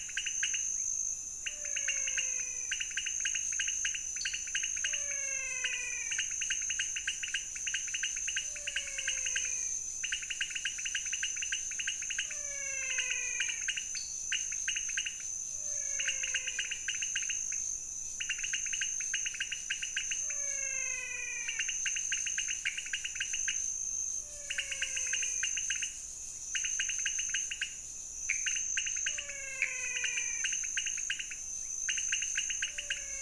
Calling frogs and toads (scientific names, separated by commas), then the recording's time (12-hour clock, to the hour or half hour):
Leptodactylus podicipinus, Physalaemus albonotatus, Dendropsophus nanus
3:30am